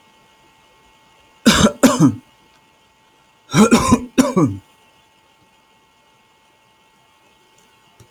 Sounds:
Cough